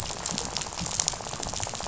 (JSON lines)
{"label": "biophony, rattle", "recorder": "SoundTrap 500"}